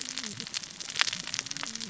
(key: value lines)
label: biophony, cascading saw
recorder: SoundTrap 600 or HydroMoth